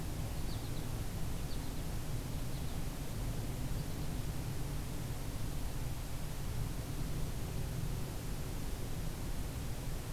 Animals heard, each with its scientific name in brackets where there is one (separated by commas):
American Goldfinch (Spinus tristis)